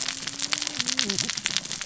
{"label": "biophony, cascading saw", "recorder": "SoundTrap 600 or HydroMoth"}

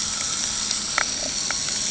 {"label": "anthrophony, boat engine", "recorder": "HydroMoth"}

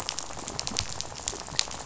{"label": "biophony, rattle", "recorder": "SoundTrap 500"}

